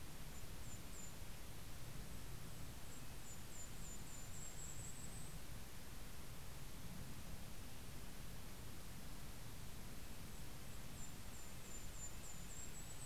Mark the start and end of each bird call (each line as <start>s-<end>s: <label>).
0.0s-5.3s: Red-breasted Nuthatch (Sitta canadensis)
0.0s-5.5s: Golden-crowned Kinglet (Regulus satrapa)
9.6s-13.1s: Red-breasted Nuthatch (Sitta canadensis)
9.8s-13.1s: Golden-crowned Kinglet (Regulus satrapa)